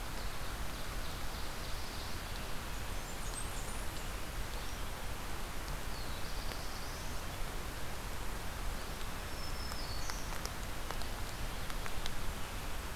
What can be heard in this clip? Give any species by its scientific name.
Seiurus aurocapilla, Setophaga fusca, Setophaga caerulescens, Setophaga virens